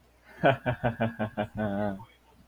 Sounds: Laughter